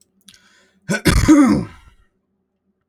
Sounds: Sneeze